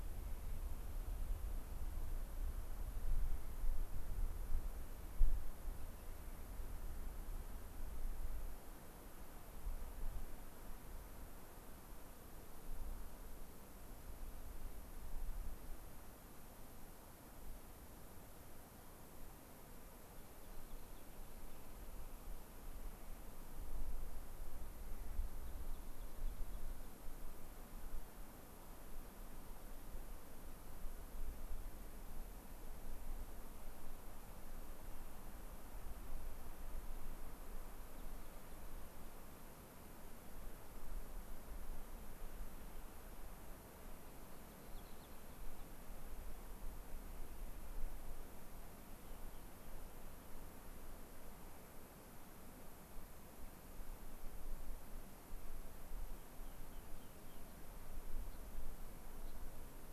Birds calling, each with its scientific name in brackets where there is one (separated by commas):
Gray-crowned Rosy-Finch (Leucosticte tephrocotis), Rock Wren (Salpinctes obsoletus)